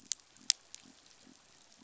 {"label": "biophony", "recorder": "SoundTrap 500"}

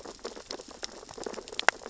{"label": "biophony, sea urchins (Echinidae)", "recorder": "SoundTrap 600 or HydroMoth"}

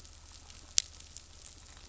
{"label": "anthrophony, boat engine", "recorder": "SoundTrap 500"}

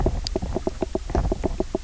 {"label": "biophony, knock croak", "recorder": "SoundTrap 300"}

